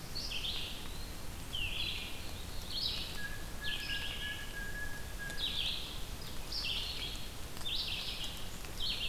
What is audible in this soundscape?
Red-eyed Vireo, Eastern Wood-Pewee, Blue Jay